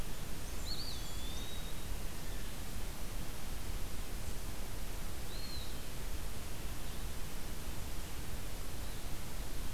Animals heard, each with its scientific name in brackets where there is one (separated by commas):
Blackburnian Warbler (Setophaga fusca), Eastern Wood-Pewee (Contopus virens)